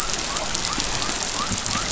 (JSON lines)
{"label": "biophony", "recorder": "SoundTrap 500"}